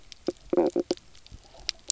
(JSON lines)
{"label": "biophony, knock croak", "recorder": "SoundTrap 300"}